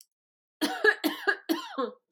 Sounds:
Cough